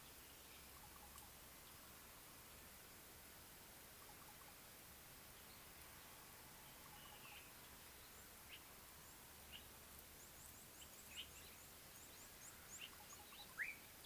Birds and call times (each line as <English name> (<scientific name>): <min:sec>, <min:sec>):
Slate-colored Boubou (Laniarius funebris): 0:04.2
Common Bulbul (Pycnonotus barbatus): 0:09.5